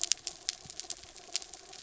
{"label": "anthrophony, mechanical", "recorder": "SoundTrap 300"}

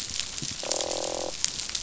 {"label": "biophony, croak", "recorder": "SoundTrap 500"}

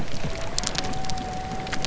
{"label": "biophony", "recorder": "SoundTrap 300"}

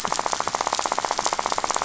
{"label": "biophony, rattle", "recorder": "SoundTrap 500"}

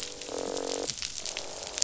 {"label": "biophony, croak", "recorder": "SoundTrap 500"}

